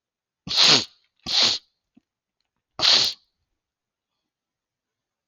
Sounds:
Sniff